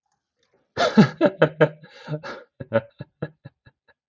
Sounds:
Laughter